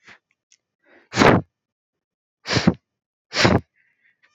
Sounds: Sniff